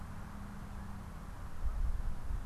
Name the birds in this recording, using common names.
Canada Goose